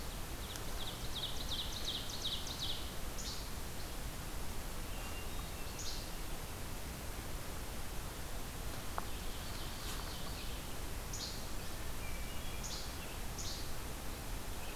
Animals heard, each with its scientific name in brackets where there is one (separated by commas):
Hermit Thrush (Catharus guttatus), Ovenbird (Seiurus aurocapilla), Least Flycatcher (Empidonax minimus)